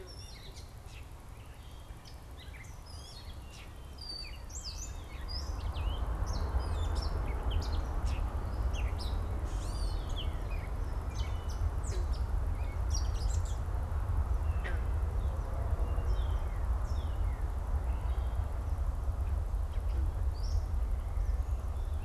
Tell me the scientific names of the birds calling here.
Dumetella carolinensis, Cardinalis cardinalis